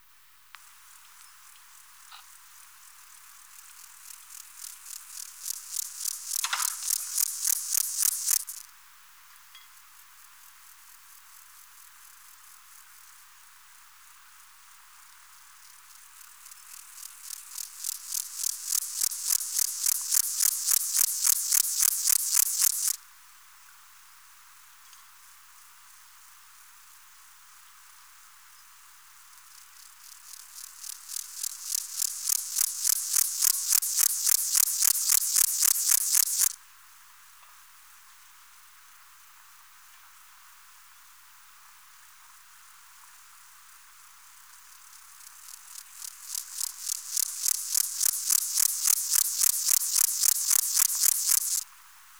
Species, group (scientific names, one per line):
Pseudochorthippus montanus
Orthoptera